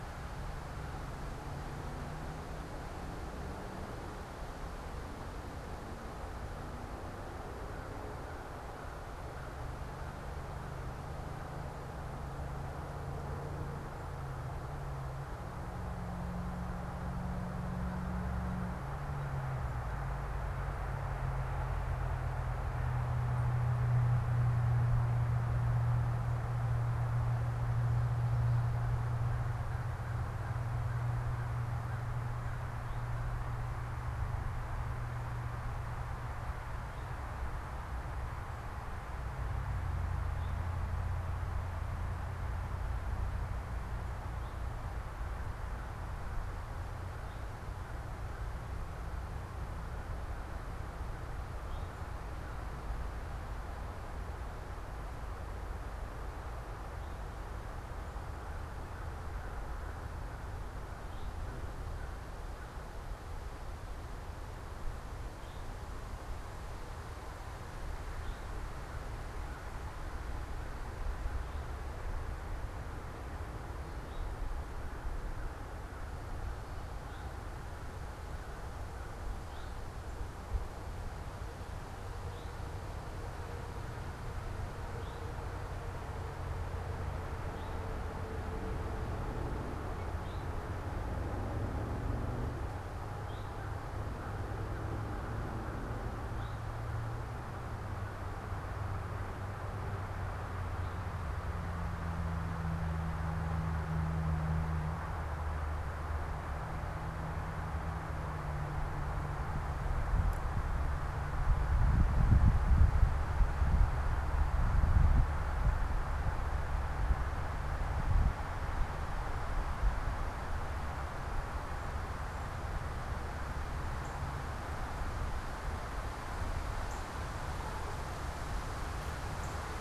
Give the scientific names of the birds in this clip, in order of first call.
Corvus brachyrhynchos, Pipilo erythrophthalmus, Cardinalis cardinalis